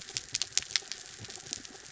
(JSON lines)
{"label": "anthrophony, mechanical", "recorder": "SoundTrap 300"}